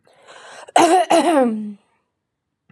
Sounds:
Throat clearing